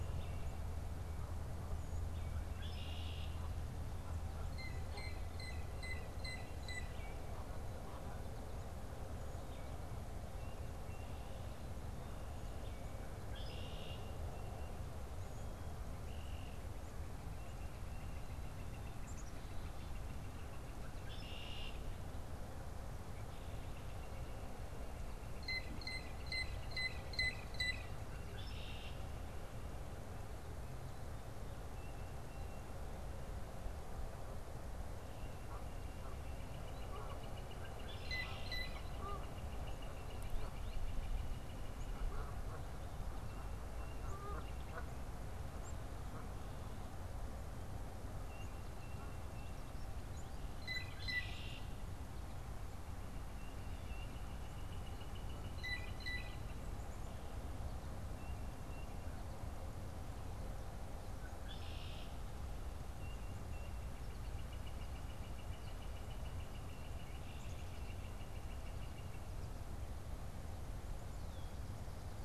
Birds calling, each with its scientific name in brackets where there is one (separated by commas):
Canada Goose (Branta canadensis), Red-winged Blackbird (Agelaius phoeniceus), Tufted Titmouse (Baeolophus bicolor), unidentified bird, Northern Flicker (Colaptes auratus), Blue Jay (Cyanocitta cristata), Black-capped Chickadee (Poecile atricapillus)